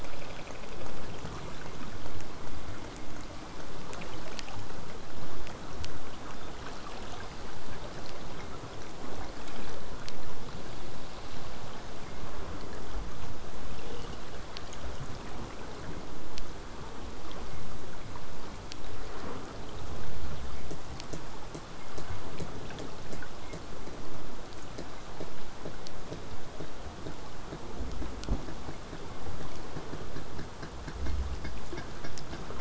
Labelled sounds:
0.0	5.0	vessel noise, 0 to 8.0 kHz
20.7	23.6	killer whale, southern resident, J pod, 1.8 to 8.0 kHz

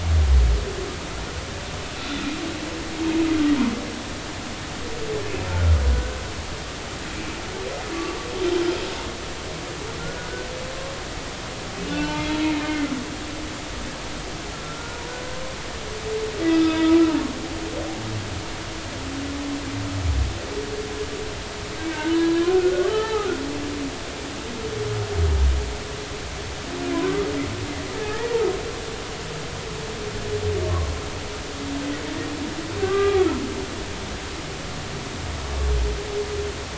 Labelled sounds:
5.4	6.2	humpback whale, 1.3 to 1.6 kHz
10.0	10.3	humpback whale, 1.3 to 1.5 kHz
11.9	12.9	humpback whale, 0.83 to 3.4 kHz
14.5	15.0	humpback whale, 1.3 to 1.5 kHz
16.5	16.9	humpback whale, 1.2 to 4.9 kHz
22.1	23.3	humpback whale, 0.80 to 4.1 kHz
28.0	28.4	humpback whale, 0.80 to 2.0 kHz
30.6	30.9	humpback whale, 0.96 to 1.2 kHz
32.8	33.3	humpback whale, 1.1 to 1.7 kHz

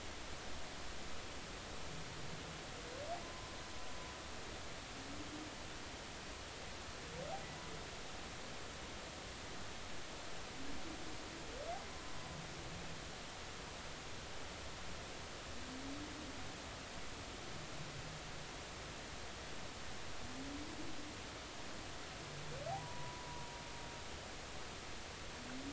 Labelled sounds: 3.2	3.5	humpback whale, 0.86 to 1.1 kHz
22.7	23.3	humpback whale, 0.80 to 1.0 kHz

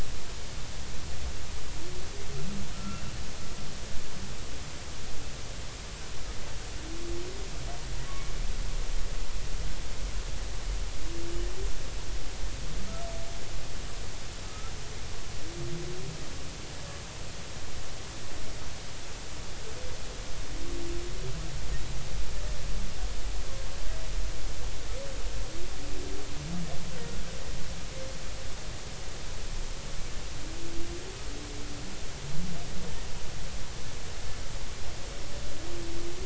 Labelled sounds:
2.7	3.0	humpback whale, 1.2 to 1.4 kHz
14.4	14.7	humpback whale, 1.2 to 1.4 kHz

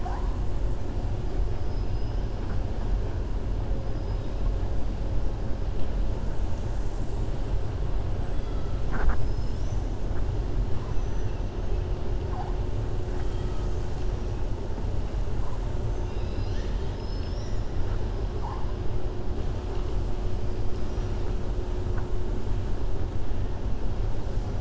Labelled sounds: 1.6	2.2	killer whale, 4.2 to 5.8 kHz
8.3	8.7	killer whale, 1.3 to 4.0 kHz
9.1	9.9	killer whale, 4.3 to 6.5 kHz
13.0	13.7	killer whale, 0.78 to 3.5 kHz
15.8	17.7	killer whale, 1.8 to 6.9 kHz

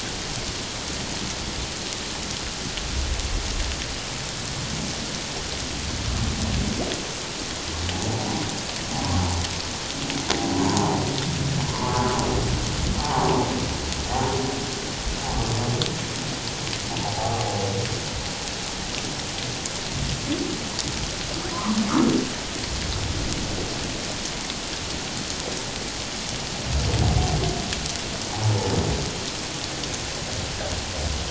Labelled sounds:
10.6	11.0	humpback whale, 0.78 to 1.1 kHz
11.7	12.1	humpback whale, 0.81 to 1.2 kHz
13.0	13.3	humpback whale, 0.78 to 1.2 kHz
17.1	17.5	humpback whale, 0.78 to 0.91 kHz
21.5	21.8	humpback whale, 0.91 to 1.4 kHz

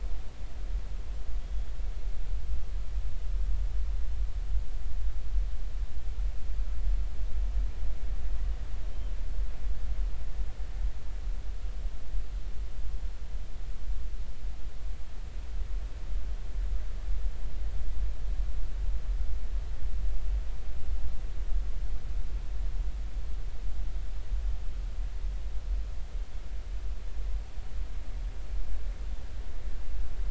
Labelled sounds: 1.4	1.7	killer whale, northern resident, G clan, GG subclan, call N23ii, 3.2 to 3.4 kHz

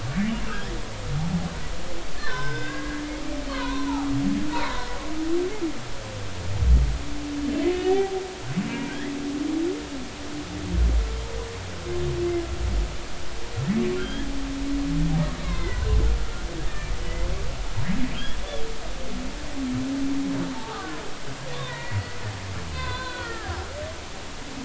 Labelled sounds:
2.2	4.9	humpback whale, 0.80 to 5.2 kHz
7.7	8.2	humpback whale, 0.80 to 2.0 kHz
8.7	9.1	humpback whale, 1.5 to 2.4 kHz
14.0	14.3	humpback whale, 1.3 to 3.3 kHz
15.4	17.3	humpback whale, 0.96 to 2.3 kHz
20.5	22.2	humpback whale, 0.80 to 2.5 kHz
22.7	23.5	humpback whale, 0.96 to 4.7 kHz

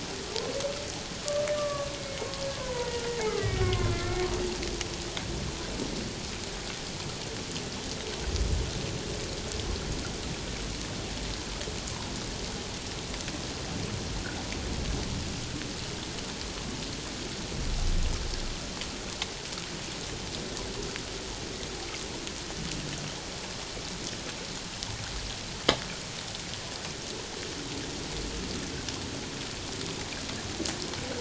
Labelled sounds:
0.3	0.6	humpback whale, 0.88 to 1.2 kHz
1.6	4.3	humpback whale, 0.91 to 2.3 kHz

